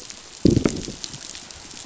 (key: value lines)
label: biophony, growl
recorder: SoundTrap 500